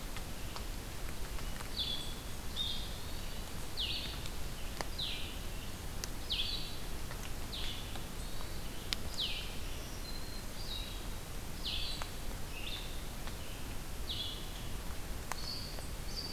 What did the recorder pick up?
Blue-headed Vireo, Hermit Thrush, Black-throated Green Warbler